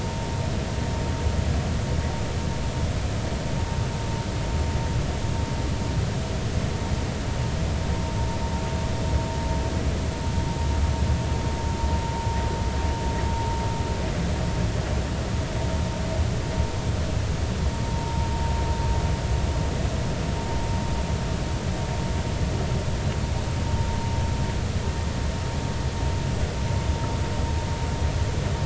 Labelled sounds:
17.8	18.3	vessel noise, 0.86 to 0.99 kHz

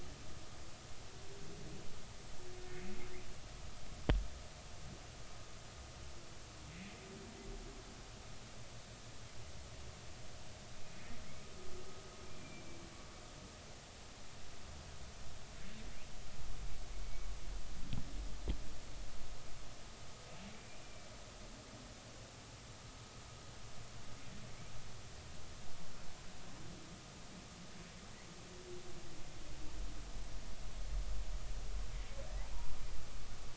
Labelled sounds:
12.4	12.7	humpback whale, 2.3 to 2.4 kHz

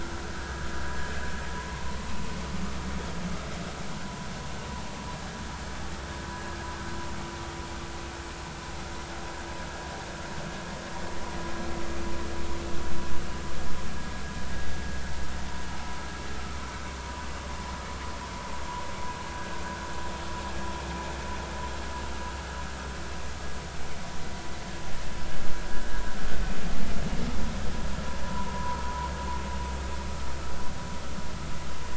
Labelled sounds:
28.2	28.8	vessel noise, 0.90 to 1.1 kHz

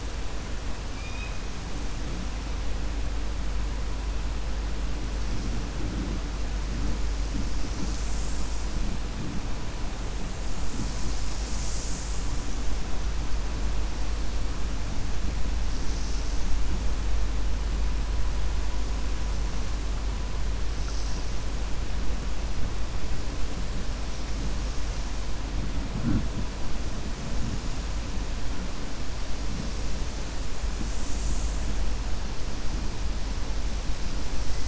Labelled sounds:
0.9	1.4	killer whale, 2.3 to 4.1 kHz

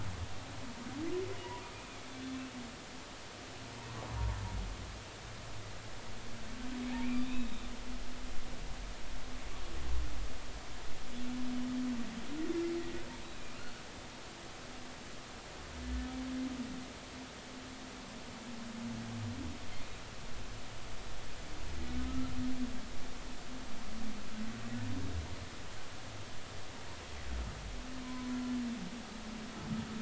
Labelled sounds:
7.0	7.7	humpback whale, 2.2 to 3.9 kHz
13.3	13.6	humpback whale, 2.3 to 2.6 kHz
29.0	29.3	humpback whale, 0.96 to 1.1 kHz

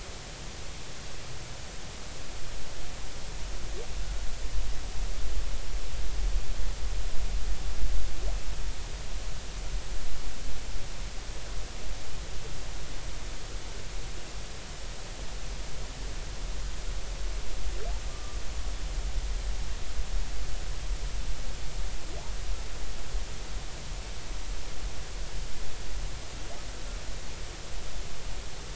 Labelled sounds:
18.1	18.4	humpback whale, 1.1 to 1.2 kHz

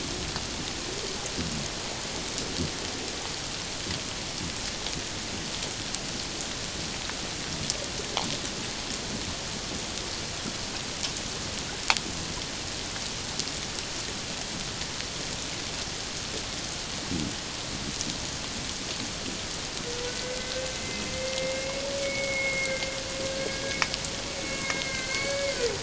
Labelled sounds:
20.1	23.8	humpback whale, 1.4 to 5.0 kHz
24.4	25.6	humpback whale, 1.5 to 2.3 kHz

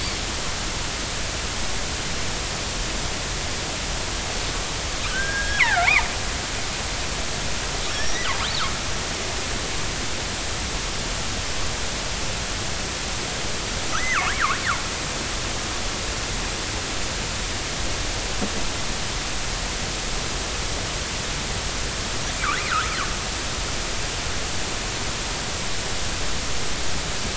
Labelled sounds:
5.1	6.1	killer whale, northern resident, G clan, 0.80 to 5.5 kHz
7.8	8.4	killer whale, northern resident, G clan, 1.7 to 6.0 kHz
14.0	14.6	killer whale, northern resident, G clan, 0.90 to 2.3 kHz
22.7	23.0	killer whale, northern resident, G clan, 1.2 to 1.7 kHz

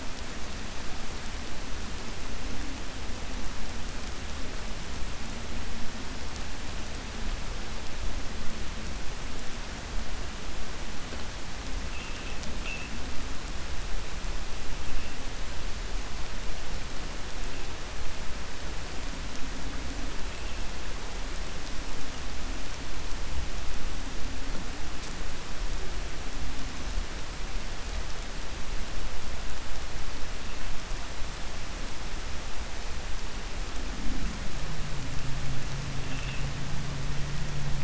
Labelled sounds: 11.8	12.4	vessel noise, 2.5 to 3.5 kHz

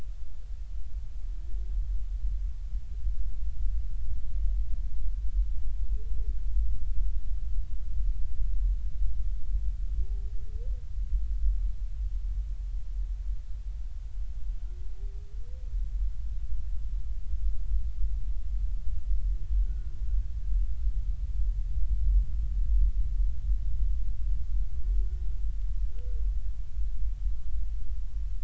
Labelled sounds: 19.7	19.9	humpback whale, 1.4 to 1.5 kHz

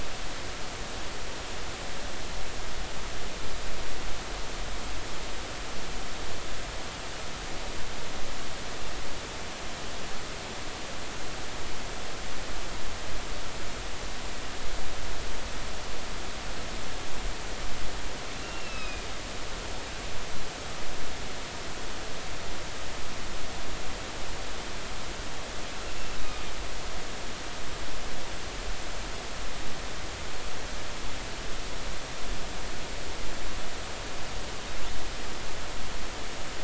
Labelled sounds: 18.4	19.1	killer whale, northern resident, A clan, AA subclan, A05 pod, call N04, 2.4 to 4.1 kHz
26.1	26.4	killer whale, northern resident, A clan, AA subclan, A05 pod, call N04, 3.6 to 4.0 kHz

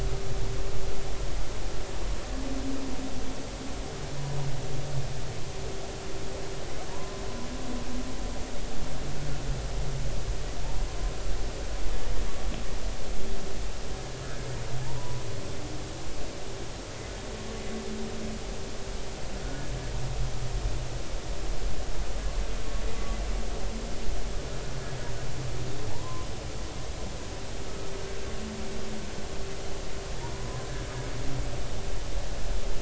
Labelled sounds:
6.9	7.2	humpback whale, 0.90 to 1.1 kHz
14.8	15.2	humpback whale, 0.80 to 1.0 kHz
19.4	19.6	humpback whale, 1.4 to 1.5 kHz
25.9	26.3	humpback whale, 0.80 to 1.1 kHz
30.3	30.7	humpback whale, 0.96 to 1.1 kHz

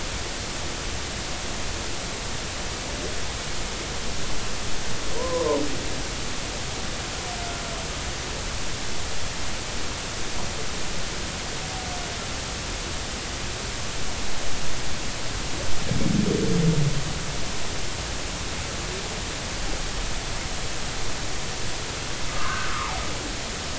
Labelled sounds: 5.2	5.6	humpback whale, 0.86 to 1.1 kHz
22.3	23.0	humpback whale, 0.80 to 1.4 kHz

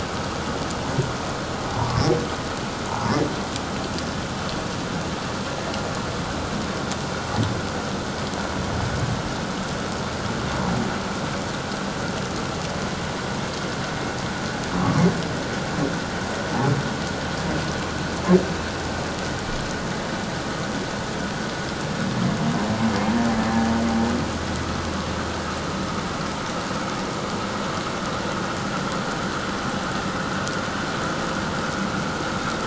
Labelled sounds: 2.9	3.1	humpback whale, 0.81 to 1.1 kHz
14.8	15.1	humpback whale, 1.0 to 1.2 kHz

